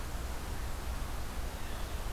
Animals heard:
forest ambience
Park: Marsh-Billings-Rockefeller National Historical Park